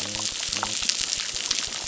{"label": "biophony", "recorder": "SoundTrap 600"}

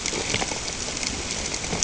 {"label": "ambient", "recorder": "HydroMoth"}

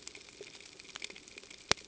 {"label": "ambient", "recorder": "HydroMoth"}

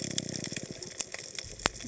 {"label": "biophony", "recorder": "HydroMoth"}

